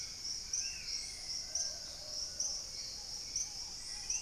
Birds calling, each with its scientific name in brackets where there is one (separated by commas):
Paradise Tanager (Tangara chilensis), Hauxwell's Thrush (Turdus hauxwelli), Long-billed Woodcreeper (Nasica longirostris), Plumbeous Pigeon (Patagioenas plumbea), Spot-winged Antshrike (Pygiptila stellaris), Black-tailed Trogon (Trogon melanurus)